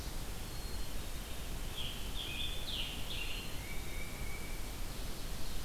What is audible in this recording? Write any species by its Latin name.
Poecile atricapillus, Piranga olivacea, Baeolophus bicolor, Seiurus aurocapilla